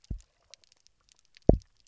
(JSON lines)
{"label": "biophony, double pulse", "recorder": "SoundTrap 300"}